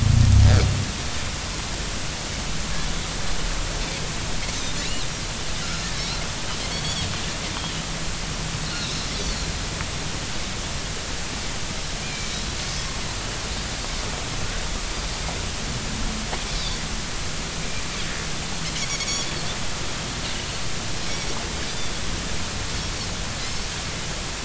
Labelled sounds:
4.8	5.1	Pacific white-sided dolphin, 3.8 to 4.4 kHz
6.7	7.1	Pacific white-sided dolphin, 3.1 to 3.6 kHz
8.8	9.5	Pacific white-sided dolphin, 3.4 to 4.7 kHz
12.0	12.3	Pacific white-sided dolphin, 2.2 to 2.5 kHz
18.9	19.3	Pacific white-sided dolphin, 2.1 to 6.8 kHz

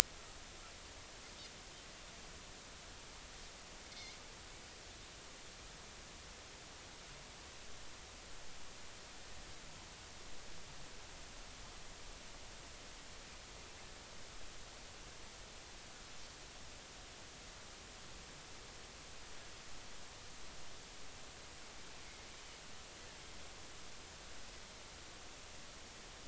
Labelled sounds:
3.9	4.2	Pacific white-sided dolphin, 2.0 to 2.3 kHz

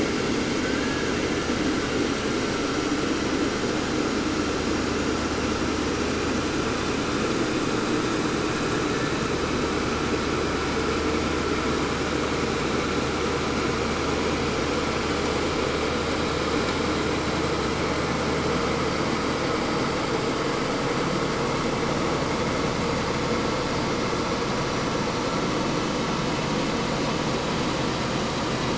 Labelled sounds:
0.4	1.3	killer whale, Bigg's (transient), 0.53 to 2.6 kHz

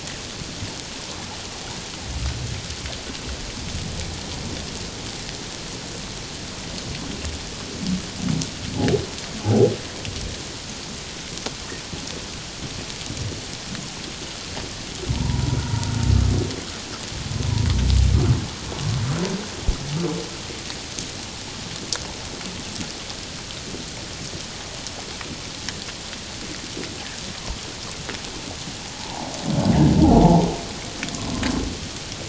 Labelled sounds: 9.4	9.7	humpback whale, 0.78 to 0.91 kHz
15.1	15.9	humpback whale, 0.84 to 1.0 kHz
29.0	29.3	humpback whale, 0.78 to 1.0 kHz

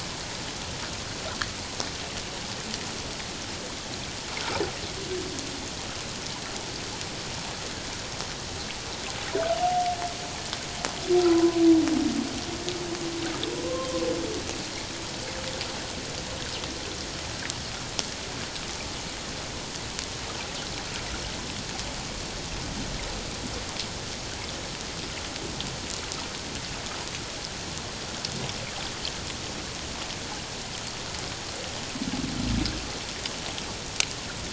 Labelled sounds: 11.2	11.6	humpback whale, 0.94 to 1.1 kHz

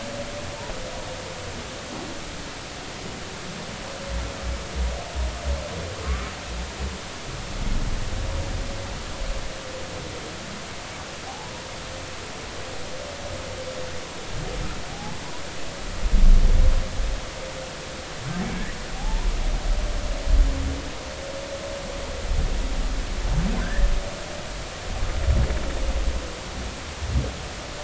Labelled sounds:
6.0	6.3	humpback whale, 1.0 to 1.3 kHz
11.3	11.5	humpback whale, 0.80 to 0.99 kHz
14.9	15.2	humpback whale, 0.80 to 0.90 kHz
18.9	19.3	humpback whale, 0.80 to 1.0 kHz
23.6	23.9	humpback whale, 1.4 to 1.9 kHz

